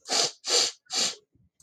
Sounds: Sniff